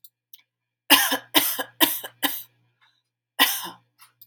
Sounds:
Cough